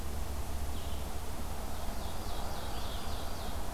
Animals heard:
Blue-headed Vireo (Vireo solitarius), Ovenbird (Seiurus aurocapilla)

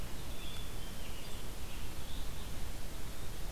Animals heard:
Black-capped Chickadee (Poecile atricapillus), Rose-breasted Grosbeak (Pheucticus ludovicianus), Red-eyed Vireo (Vireo olivaceus)

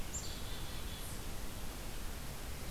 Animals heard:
Black-capped Chickadee (Poecile atricapillus)

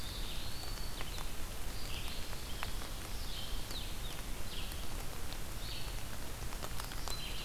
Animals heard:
Red-eyed Vireo (Vireo olivaceus), Eastern Wood-Pewee (Contopus virens)

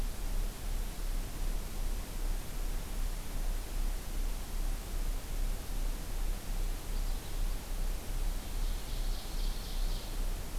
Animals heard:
Ovenbird (Seiurus aurocapilla)

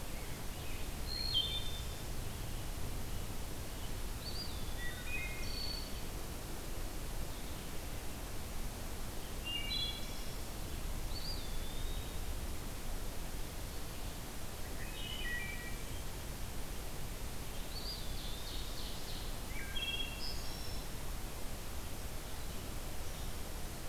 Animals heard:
Ovenbird (Seiurus aurocapilla), Wood Thrush (Hylocichla mustelina), Scarlet Tanager (Piranga olivacea), Eastern Wood-Pewee (Contopus virens)

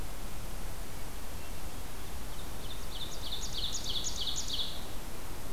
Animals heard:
Ovenbird (Seiurus aurocapilla)

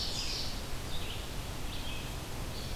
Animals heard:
Red-eyed Vireo (Vireo olivaceus), Ovenbird (Seiurus aurocapilla)

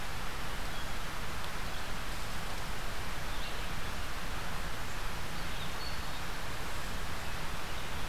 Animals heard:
Hermit Thrush (Catharus guttatus)

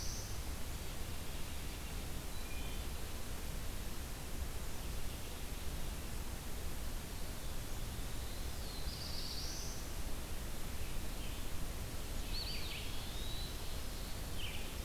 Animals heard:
Wood Thrush (Hylocichla mustelina), Black-throated Blue Warbler (Setophaga caerulescens), Eastern Wood-Pewee (Contopus virens), Red-eyed Vireo (Vireo olivaceus)

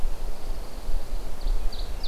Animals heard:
Pine Warbler (Setophaga pinus), Ovenbird (Seiurus aurocapilla)

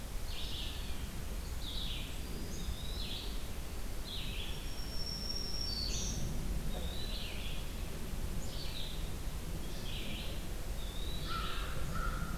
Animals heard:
Red-eyed Vireo (Vireo olivaceus), Eastern Wood-Pewee (Contopus virens), Black-throated Green Warbler (Setophaga virens), American Crow (Corvus brachyrhynchos)

